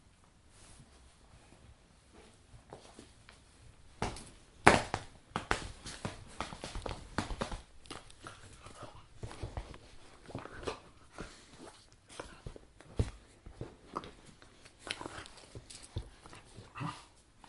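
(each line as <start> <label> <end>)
3.9 Irregular, natural firework sounds outdoors in a field. 7.6
8.3 A dog makes irregular snarling and growling sounds while playing with a bottle, with intermittent and playful noises. 9.4
10.3 A dog makes irregular snarling and growling sounds playfully and intermittently while playing with a bottle. 15.3
11.5 A dog walks with natural, irregular footsteps outside. 13.6
16.7 A dog makes irregular snarling and growling sounds playfully and intermittently while playing with a bottle. 17.1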